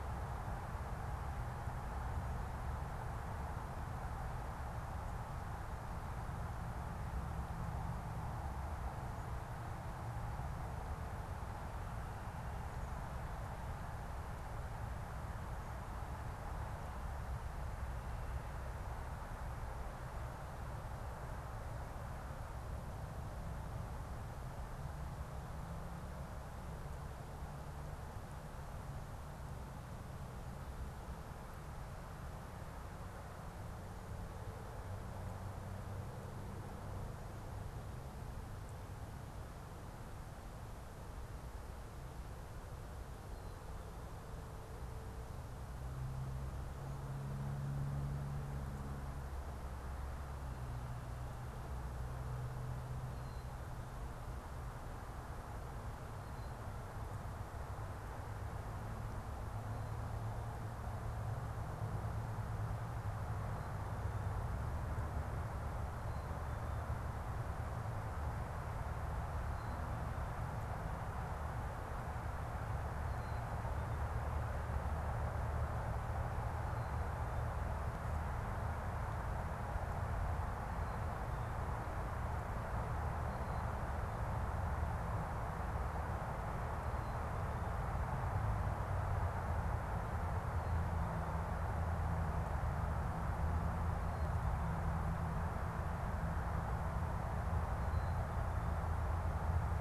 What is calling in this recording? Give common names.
Black-capped Chickadee